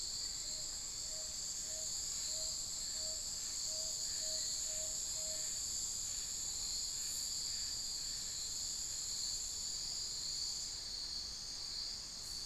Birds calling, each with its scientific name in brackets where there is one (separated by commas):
Tawny-bellied Screech-Owl (Megascops watsonii), Hauxwell's Thrush (Turdus hauxwelli)